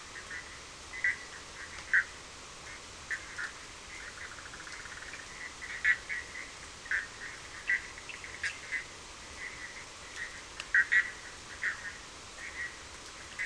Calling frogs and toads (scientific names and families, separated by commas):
Boana bischoffi (Hylidae)